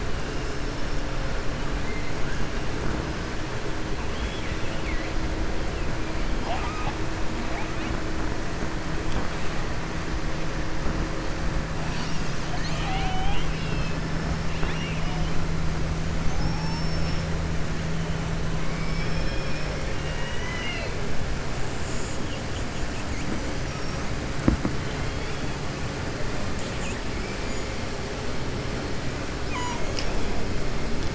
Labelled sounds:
4.1	5.1	killer whale, southern resident, 1.9 to 3.6 kHz
7.4	7.9	killer whale, southern resident, 0.67 to 3.6 kHz
14.5	15.2	killer whale, southern resident, 1.1 to 4.0 kHz
16.2	17.3	killer whale, southern resident, 4.4 to 6.4 kHz
19.9	20.9	killer whale, southern resident, 0.97 to 5.7 kHz

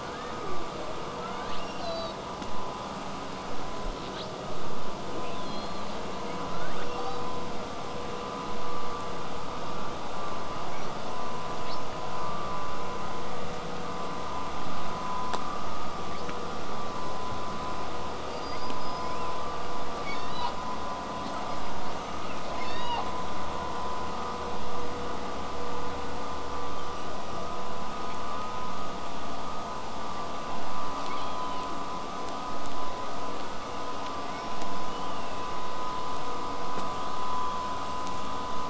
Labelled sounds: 0.0	0.7	killer whale, southern resident, 0.15 to 3.7 kHz
1.2	2.2	killer whale, southern resident, L pod, call S02iii, 0.43 to 5.8 kHz
3.9	4.3	killer whale, southern resident, call S08i, 1.4 to 6.4 kHz
6.3	7.5	killer whale, southern resident, L pod, call S02iii, 1.2 to 8.0 kHz
10.7	11.3	killer whale, southern resident, 2.0 to 8.0 kHz
11.6	11.9	killer whale, southern resident, 1.7 to 6.1 kHz
12.5	17.5	vessel noise, 0 to 8.0 kHz
18.3	19.4	killer whale, southern resident, L pod, call S19, 1.7 to 8.0 kHz
20.0	20.5	killer whale, southern resident, 1.8 to 7.0 kHz
21.2	23.1	killer whale, southern resident, L pod, call S18, 0.55 to 8.0 kHz
26.5	27.2	killer whale, southern resident, 2.7 to 8.0 kHz
31.1	31.7	killer whale, southern resident, L pod, call S40, 2.1 to 8.0 kHz
34.1	35.6	killer whale, southern resident, 1.8 to 5.7 kHz

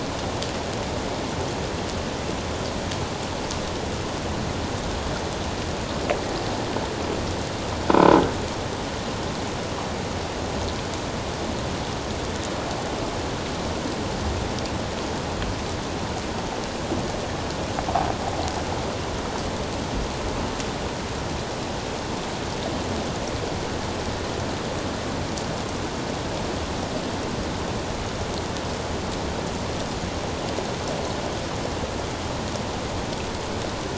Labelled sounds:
7.9	8.2	croaking sound likely from a nearby submerged object, 0.91 to 1.0 kHz

